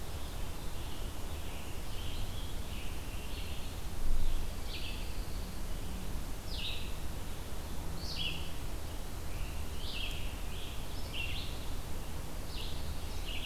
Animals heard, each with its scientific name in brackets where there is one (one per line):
Scarlet Tanager (Piranga olivacea)
Red-eyed Vireo (Vireo olivaceus)
Dark-eyed Junco (Junco hyemalis)